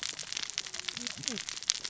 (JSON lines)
{"label": "biophony, cascading saw", "recorder": "SoundTrap 600 or HydroMoth"}